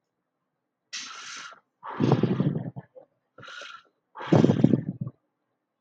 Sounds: Sigh